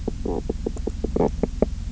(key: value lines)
label: biophony, knock croak
recorder: SoundTrap 300